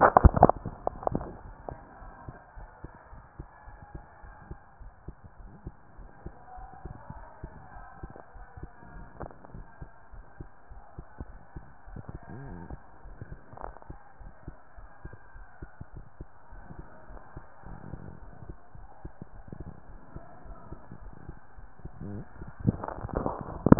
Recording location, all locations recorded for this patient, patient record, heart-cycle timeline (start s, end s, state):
tricuspid valve (TV)
pulmonary valve (PV)+tricuspid valve (TV)
#Age: nan
#Sex: Female
#Height: nan
#Weight: nan
#Pregnancy status: True
#Murmur: Absent
#Murmur locations: nan
#Most audible location: nan
#Systolic murmur timing: nan
#Systolic murmur shape: nan
#Systolic murmur grading: nan
#Systolic murmur pitch: nan
#Systolic murmur quality: nan
#Diastolic murmur timing: nan
#Diastolic murmur shape: nan
#Diastolic murmur grading: nan
#Diastolic murmur pitch: nan
#Diastolic murmur quality: nan
#Outcome: Normal
#Campaign: 2015 screening campaign
0.00	2.40	unannotated
2.40	2.56	diastole
2.56	2.68	S1
2.68	2.82	systole
2.82	2.92	S2
2.92	3.12	diastole
3.12	3.24	S1
3.24	3.38	systole
3.38	3.48	S2
3.48	3.66	diastole
3.66	3.78	S1
3.78	3.94	systole
3.94	4.04	S2
4.04	4.22	diastole
4.22	4.34	S1
4.34	4.50	systole
4.50	4.60	S2
4.60	4.80	diastole
4.80	4.92	S1
4.92	5.08	systole
5.08	5.18	S2
5.18	5.38	diastole
5.38	5.52	S1
5.52	5.66	systole
5.66	5.76	S2
5.76	5.98	diastole
5.98	6.10	S1
6.10	6.24	systole
6.24	6.34	S2
6.34	6.56	diastole
6.56	6.68	S1
6.68	6.84	systole
6.84	6.96	S2
6.96	7.16	diastole
7.16	7.28	S1
7.28	7.42	systole
7.42	7.54	S2
7.54	7.74	diastole
7.74	7.86	S1
7.86	8.02	systole
8.02	8.12	S2
8.12	8.34	diastole
8.34	8.46	S1
8.46	8.62	systole
8.62	8.72	S2
8.72	8.94	diastole
8.94	9.08	S1
9.08	9.22	systole
9.22	9.32	S2
9.32	9.54	diastole
9.54	9.66	S1
9.66	9.80	systole
9.80	9.92	S2
9.92	10.12	diastole
10.12	10.24	S1
10.24	10.39	systole
10.39	10.50	S2
10.50	10.70	diastole
10.70	10.82	S1
10.82	10.96	systole
10.96	11.08	S2
11.08	11.30	diastole
11.30	11.40	S1
11.40	11.54	systole
11.54	11.66	S2
11.66	11.88	diastole
11.88	12.00	S1
12.00	12.11	systole
12.11	12.20	S2
12.20	12.38	diastole
12.38	12.56	S1
12.56	12.70	systole
12.70	12.82	S2
12.82	13.05	diastole
13.05	13.17	S1
13.17	13.30	systole
13.30	13.42	S2
13.42	13.62	diastole
13.62	13.74	S1
13.74	13.88	systole
13.88	13.98	S2
13.98	14.20	diastole
14.20	14.32	S1
14.32	14.46	systole
14.46	14.56	S2
14.56	14.78	diastole
14.78	14.90	S1
14.90	15.03	systole
15.03	15.14	S2
15.14	15.36	diastole
15.36	15.46	S1
15.46	15.61	systole
15.61	15.69	S2
15.69	15.94	diastole
15.94	16.06	S1
16.06	16.18	systole
16.18	16.30	S2
16.30	16.51	diastole
16.51	16.63	S1
16.63	16.77	systole
16.77	16.87	S2
16.87	17.08	diastole
17.08	17.20	S1
17.20	17.35	systole
17.35	17.45	S2
17.45	17.65	diastole
17.65	17.78	S1
17.78	17.91	systole
17.91	18.04	S2
18.04	18.22	diastole
18.22	18.34	S1
18.34	18.46	systole
18.46	18.56	S2
18.56	18.77	diastole
18.77	18.90	S1
18.90	19.03	systole
19.03	19.12	S2
19.12	19.34	diastole
19.34	19.46	S1
19.46	19.58	systole
19.58	19.68	S2
19.68	19.90	diastole
19.90	20.01	S1
20.01	20.14	systole
20.14	20.23	S2
20.23	20.46	diastole
20.46	20.58	S1
20.58	20.70	systole
20.70	20.80	S2
20.80	21.02	diastole
21.02	21.14	S1
21.14	21.27	systole
21.27	21.35	S2
21.35	21.58	diastole
21.58	21.70	S1
21.70	21.83	systole
21.83	21.89	S2
21.89	21.93	diastole
21.93	23.79	unannotated